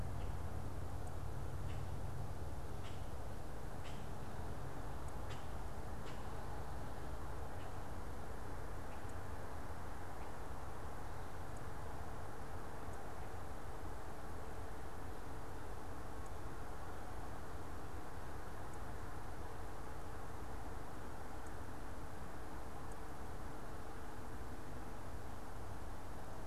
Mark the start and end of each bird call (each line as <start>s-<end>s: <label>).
0.0s-6.4s: Common Grackle (Quiscalus quiscula)